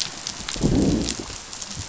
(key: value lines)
label: biophony, growl
recorder: SoundTrap 500